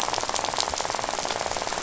{"label": "biophony, rattle", "recorder": "SoundTrap 500"}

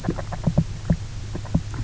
{"label": "biophony, grazing", "recorder": "SoundTrap 300"}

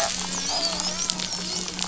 {"label": "biophony, dolphin", "recorder": "SoundTrap 500"}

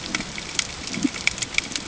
{"label": "ambient", "recorder": "HydroMoth"}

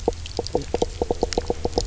{"label": "biophony, knock croak", "recorder": "SoundTrap 300"}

